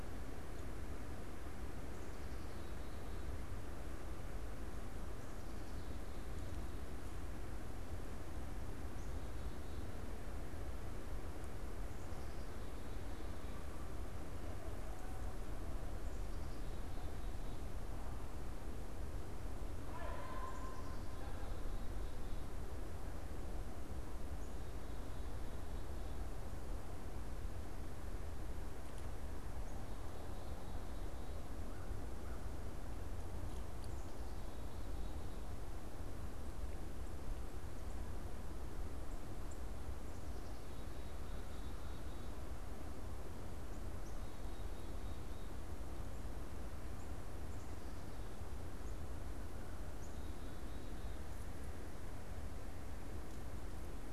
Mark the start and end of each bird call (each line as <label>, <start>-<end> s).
Black-capped Chickadee (Poecile atricapillus), 40.0-42.3 s
Black-capped Chickadee (Poecile atricapillus), 43.9-45.6 s
Black-capped Chickadee (Poecile atricapillus), 49.9-51.5 s